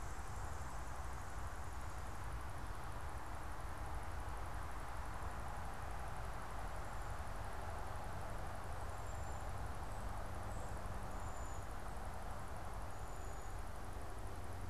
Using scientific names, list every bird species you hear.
unidentified bird